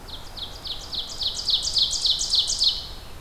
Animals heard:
Ovenbird (Seiurus aurocapilla)

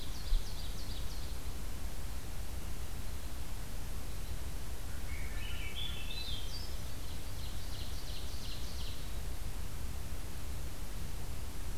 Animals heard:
Red Crossbill (Loxia curvirostra)
Swainson's Thrush (Catharus ustulatus)
Ovenbird (Seiurus aurocapilla)

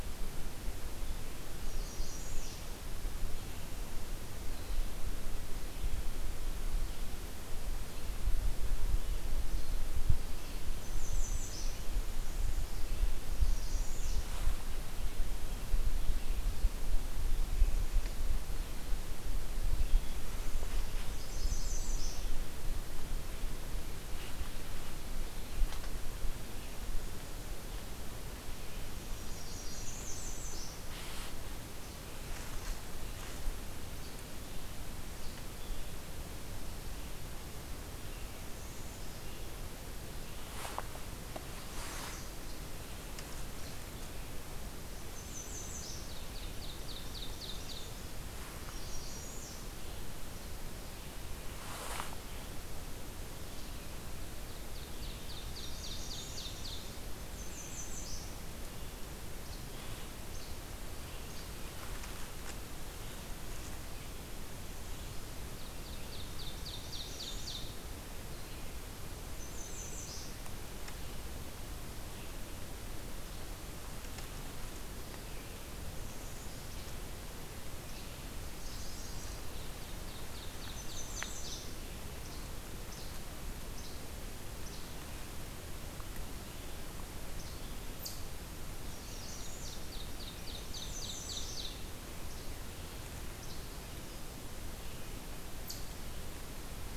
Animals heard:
Ovenbird (Seiurus aurocapilla)
American Redstart (Setophaga ruticilla)
Least Flycatcher (Empidonax minimus)

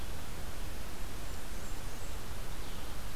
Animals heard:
Blackburnian Warbler (Setophaga fusca)

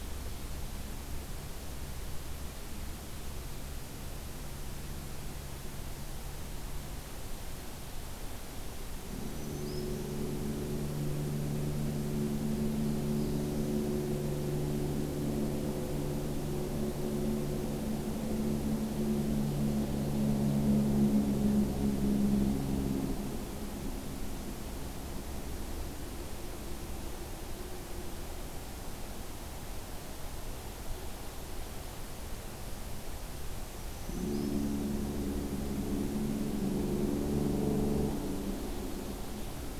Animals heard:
Black-throated Green Warbler (Setophaga virens)

